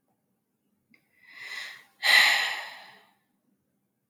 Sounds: Sigh